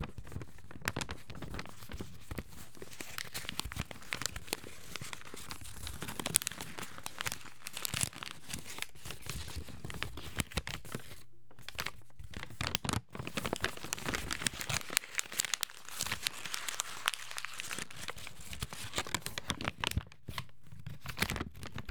Is someone talking?
no